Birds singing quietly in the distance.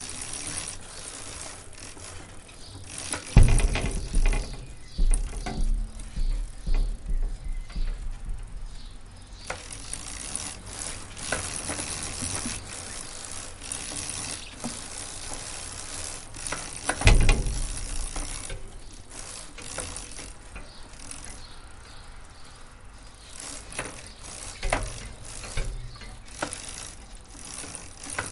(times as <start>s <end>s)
6.6s 23.6s